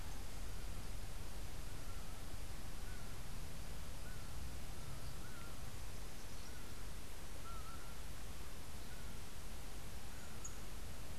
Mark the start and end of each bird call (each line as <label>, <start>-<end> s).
Laughing Falcon (Herpetotheres cachinnans), 0.0-11.2 s